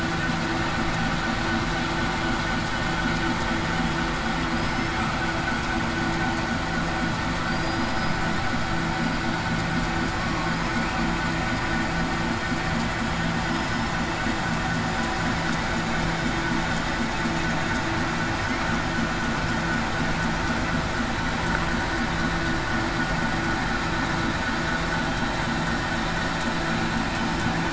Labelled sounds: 4.5	5.0	killer whale, southern resident, 4.9 to 5.4 kHz
7.5	7.9	killer whale, southern resident, 4.6 to 4.9 kHz
13.5	13.9	killer whale, southern resident, 5.1 to 5.4 kHz

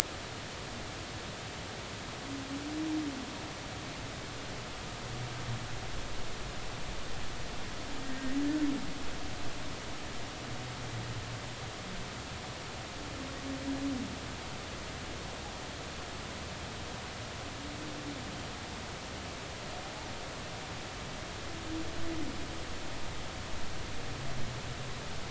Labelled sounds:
8.0	8.4	humpback whale, 1.8 to 2.0 kHz

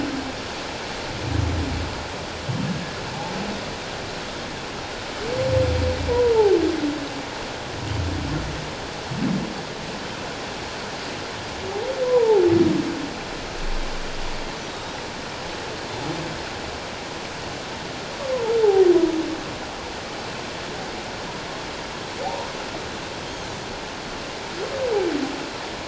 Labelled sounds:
6.2	6.6	humpback whale, 0.78 to 1.0 kHz
12.0	12.4	humpback whale, 0.78 to 1.1 kHz
14.7	15.0	Pacific white-sided dolphin, 3.7 to 3.8 kHz
22.2	22.5	humpback whale, 0.78 to 1.0 kHz

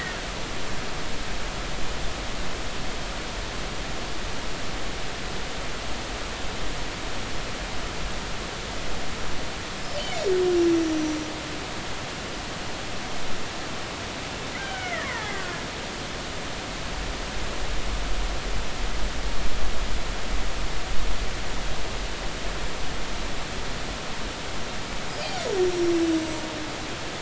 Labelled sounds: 14.6	15.6	killer whale, Bigg's (transient), 0.80 to 3.2 kHz
25.7	25.9	killer whale, Bigg's (transient), 5.4 to 5.8 kHz

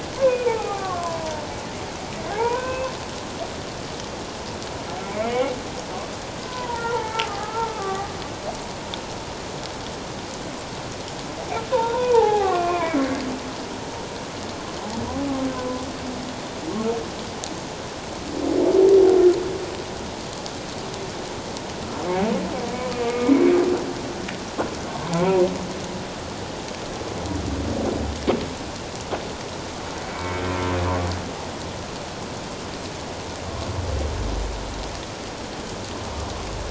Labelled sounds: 0.1	1.4	humpback whale, 0.78 to 2.7 kHz
2.3	2.9	humpback whale, 0.78 to 2.7 kHz
5.2	5.5	humpback whale, 2.1 to 2.3 kHz
6.5	8.1	humpback whale, 0.78 to 2.3 kHz
11.7	13.0	humpback whale, 0.78 to 2.5 kHz
15.6	15.8	humpback whale, 0.97 to 1.1 kHz
22.9	23.6	humpback whale, 1.1 to 2.5 kHz
30.0	30.4	humpback whale, 2.1 to 2.3 kHz

